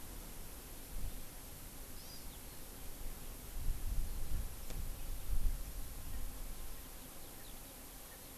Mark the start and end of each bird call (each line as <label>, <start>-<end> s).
Hawaii Amakihi (Chlorodrepanis virens), 1.9-2.3 s
Erckel's Francolin (Pternistis erckelii), 6.0-8.3 s
Eurasian Skylark (Alauda arvensis), 6.8-7.8 s